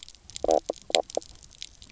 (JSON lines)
{"label": "biophony, knock croak", "recorder": "SoundTrap 300"}